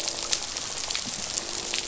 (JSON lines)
{"label": "biophony", "recorder": "SoundTrap 500"}